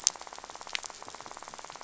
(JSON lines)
{"label": "biophony, rattle", "recorder": "SoundTrap 500"}